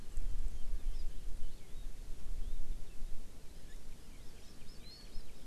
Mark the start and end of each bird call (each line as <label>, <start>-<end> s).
Hawaii Amakihi (Chlorodrepanis virens), 0.9-1.0 s
Hawaii Amakihi (Chlorodrepanis virens), 4.0-5.4 s